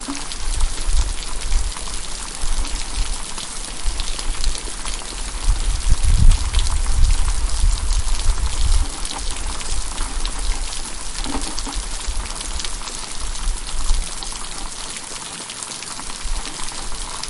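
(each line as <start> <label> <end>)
0.0 Rain falling at a moderate pace. 17.3
0.4 A low-pitched rumbling sound continues indistinctly. 4.5
5.5 A low-pitched rumbling sound gradually gets louder and continues. 8.8
9.4 A low-pitched rumbling sound continues indistinctly. 11.8
11.8 A quiet, continuous, low-pitched rumbling sound. 14.2
16.2 A continuous low-pitched rumbling sound. 16.9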